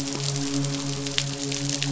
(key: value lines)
label: biophony, midshipman
recorder: SoundTrap 500